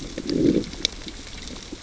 {"label": "biophony, growl", "recorder": "SoundTrap 600 or HydroMoth"}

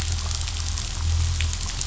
{"label": "anthrophony, boat engine", "recorder": "SoundTrap 500"}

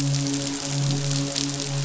{"label": "biophony, midshipman", "recorder": "SoundTrap 500"}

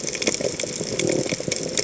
{"label": "biophony", "recorder": "HydroMoth"}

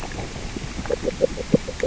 {"label": "biophony, grazing", "recorder": "SoundTrap 600 or HydroMoth"}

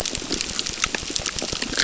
{"label": "biophony, crackle", "recorder": "SoundTrap 600"}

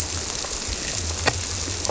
{"label": "biophony", "recorder": "SoundTrap 300"}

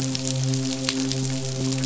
{"label": "biophony, midshipman", "recorder": "SoundTrap 500"}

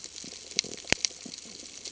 {"label": "ambient", "recorder": "HydroMoth"}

